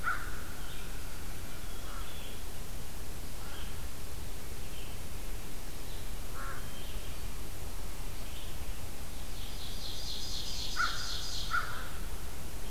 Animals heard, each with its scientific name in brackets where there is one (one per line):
Ovenbird (Seiurus aurocapilla)
Red-eyed Vireo (Vireo olivaceus)
American Crow (Corvus brachyrhynchos)